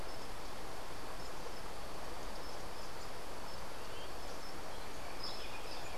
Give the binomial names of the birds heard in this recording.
Saltator maximus